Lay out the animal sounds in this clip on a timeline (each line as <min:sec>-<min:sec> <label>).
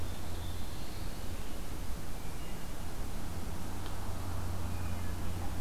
0:00.0-0:01.3 Black-throated Blue Warbler (Setophaga caerulescens)